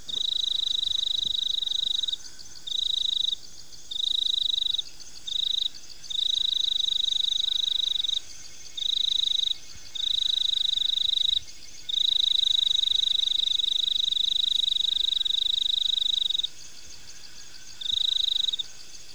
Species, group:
Teleogryllus mitratus, Orthoptera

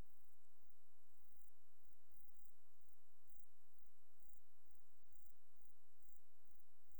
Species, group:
Euchorthippus declivus, Orthoptera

